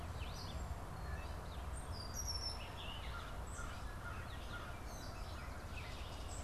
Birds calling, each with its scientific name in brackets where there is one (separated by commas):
Red-winged Blackbird (Agelaius phoeniceus), Gray Catbird (Dumetella carolinensis), American Crow (Corvus brachyrhynchos)